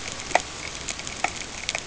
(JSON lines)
{"label": "ambient", "recorder": "HydroMoth"}